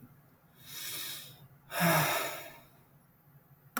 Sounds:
Sigh